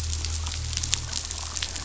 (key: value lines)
label: anthrophony, boat engine
recorder: SoundTrap 500